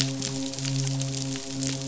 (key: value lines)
label: biophony, midshipman
recorder: SoundTrap 500